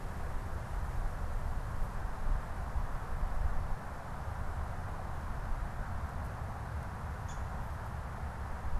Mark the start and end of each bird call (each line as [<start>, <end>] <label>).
[7.09, 7.49] Downy Woodpecker (Dryobates pubescens)